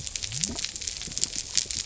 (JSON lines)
{"label": "biophony", "recorder": "SoundTrap 300"}